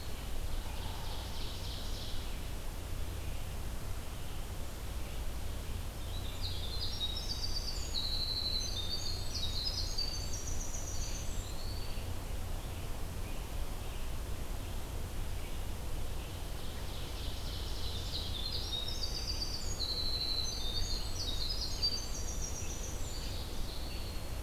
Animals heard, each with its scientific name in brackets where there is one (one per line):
Ovenbird (Seiurus aurocapilla)
Red-eyed Vireo (Vireo olivaceus)
Winter Wren (Troglodytes hiemalis)
Eastern Wood-Pewee (Contopus virens)